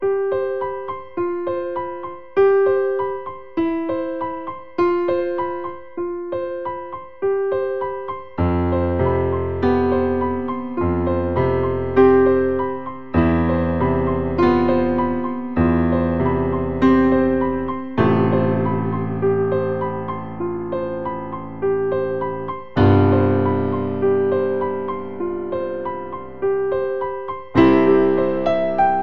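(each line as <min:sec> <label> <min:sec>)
0:00.0 A piano is playing a rhythmic pattern. 0:29.0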